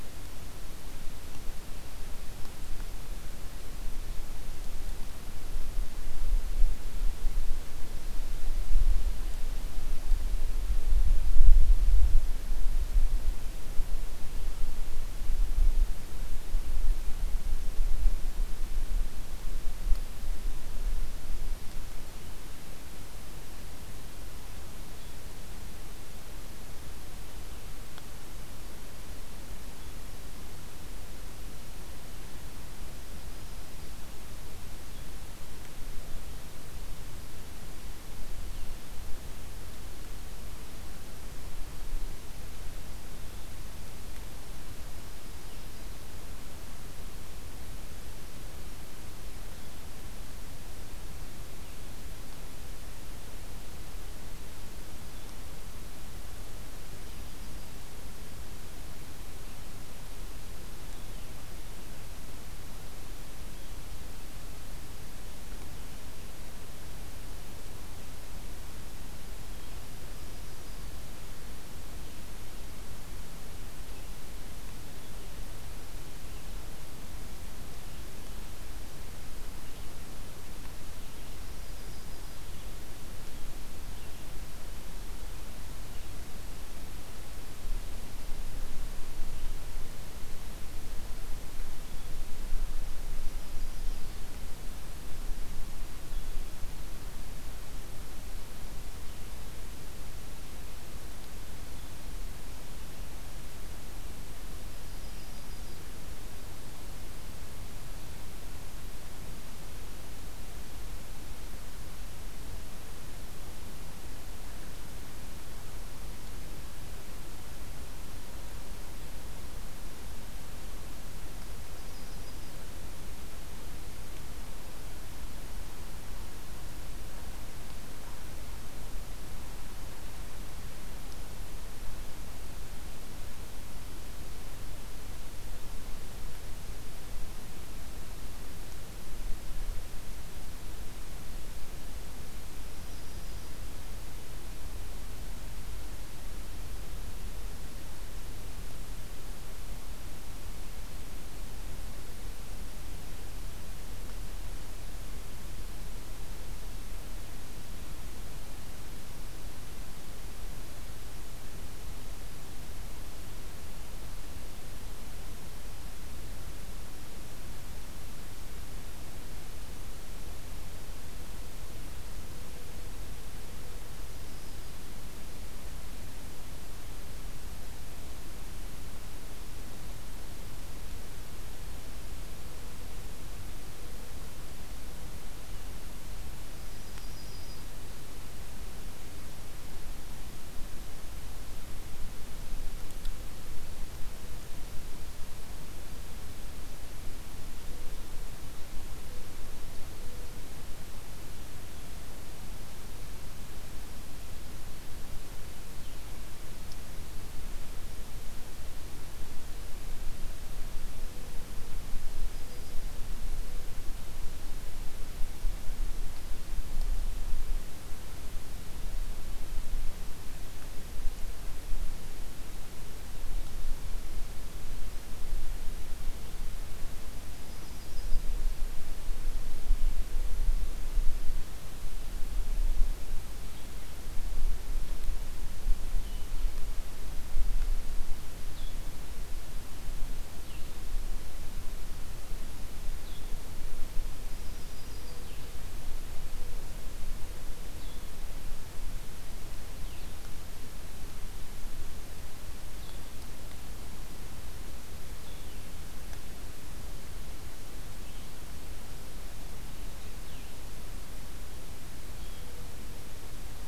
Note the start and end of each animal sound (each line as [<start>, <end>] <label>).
[69.71, 70.92] Yellow-rumped Warbler (Setophaga coronata)
[81.07, 82.39] Yellow-rumped Warbler (Setophaga coronata)
[104.48, 105.83] Yellow-rumped Warbler (Setophaga coronata)
[121.68, 122.58] Yellow-rumped Warbler (Setophaga coronata)
[142.55, 143.67] Yellow-rumped Warbler (Setophaga coronata)
[172.08, 174.26] Mourning Dove (Zenaida macroura)
[173.75, 174.85] Yellow-rumped Warbler (Setophaga coronata)
[182.48, 185.43] Mourning Dove (Zenaida macroura)
[186.38, 187.65] Yellow-rumped Warbler (Setophaga coronata)
[197.54, 200.53] Mourning Dove (Zenaida macroura)
[210.75, 213.98] Mourning Dove (Zenaida macroura)
[211.87, 212.86] Yellow-rumped Warbler (Setophaga coronata)
[227.16, 228.34] Yellow-rumped Warbler (Setophaga coronata)
[227.94, 230.51] Mourning Dove (Zenaida macroura)
[235.79, 250.17] Blue-headed Vireo (Vireo solitarius)
[244.11, 245.26] Yellow-rumped Warbler (Setophaga coronata)
[244.78, 248.34] Mourning Dove (Zenaida macroura)
[252.68, 262.61] Blue-headed Vireo (Vireo solitarius)
[262.24, 263.37] Mourning Dove (Zenaida macroura)